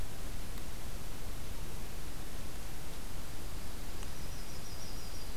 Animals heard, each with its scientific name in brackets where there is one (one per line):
Yellow-rumped Warbler (Setophaga coronata)